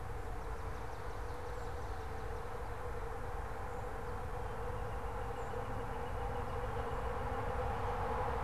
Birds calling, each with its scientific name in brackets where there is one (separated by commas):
Northern Flicker (Colaptes auratus)